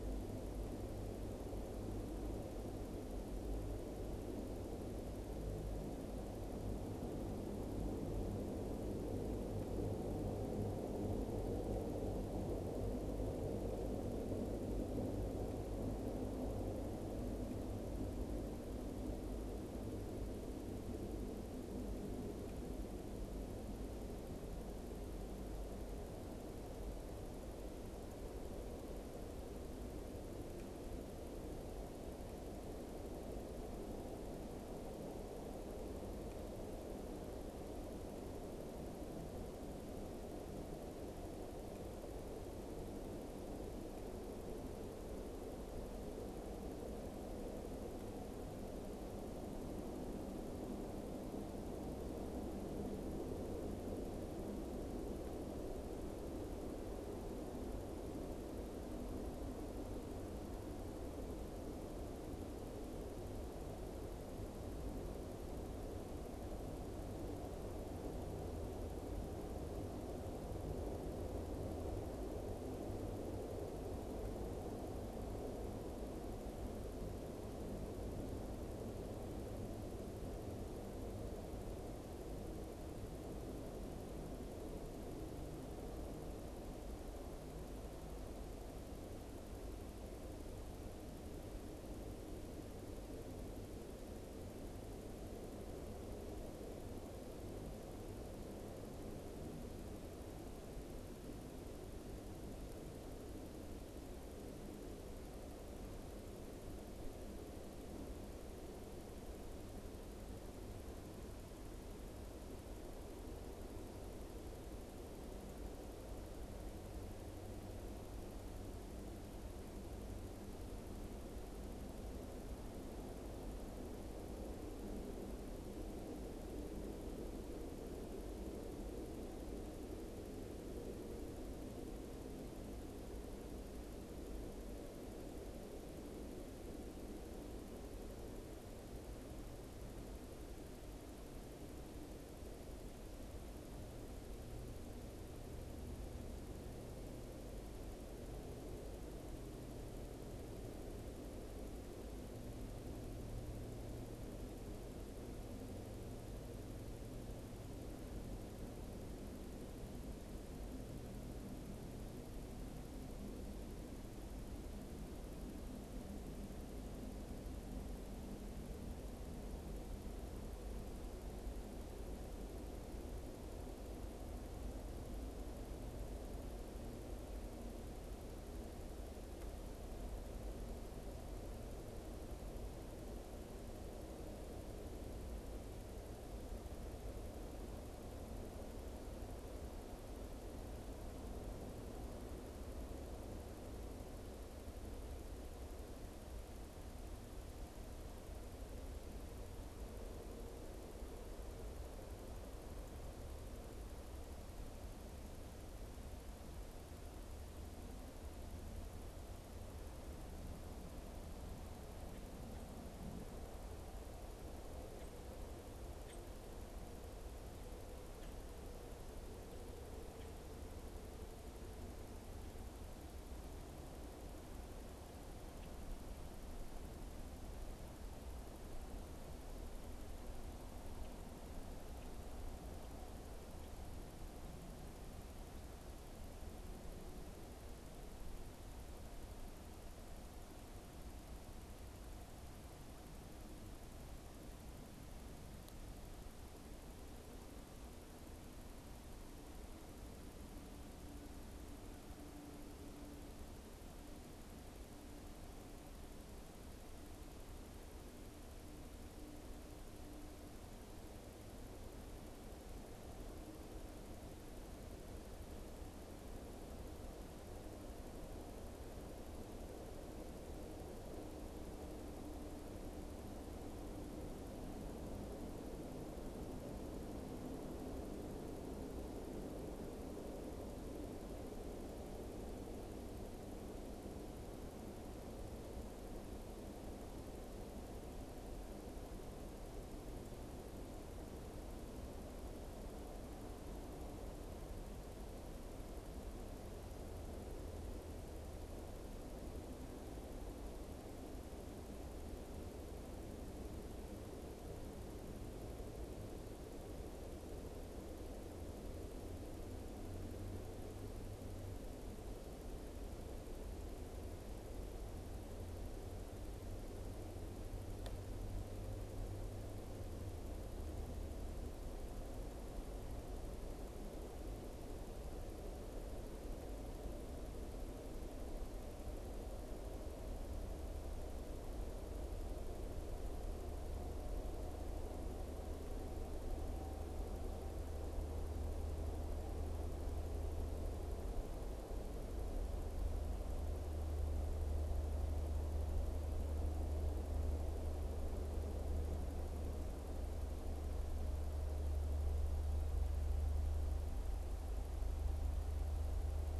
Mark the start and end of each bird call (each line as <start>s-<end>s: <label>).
214.7s-216.5s: Common Grackle (Quiscalus quiscula)